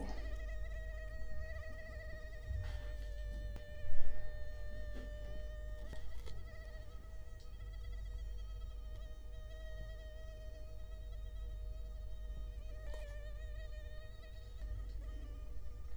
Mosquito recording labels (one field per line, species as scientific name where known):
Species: Culex quinquefasciatus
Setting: cup